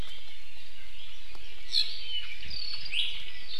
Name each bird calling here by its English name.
Apapane, Iiwi